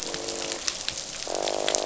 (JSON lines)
{"label": "biophony, croak", "recorder": "SoundTrap 500"}